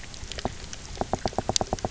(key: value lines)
label: biophony, knock
recorder: SoundTrap 300